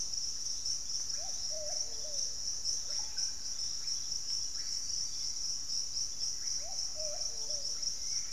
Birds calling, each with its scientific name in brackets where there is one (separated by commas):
Hauxwell's Thrush (Turdus hauxwelli), Russet-backed Oropendola (Psarocolius angustifrons), Yellow-margined Flycatcher (Tolmomyias assimilis)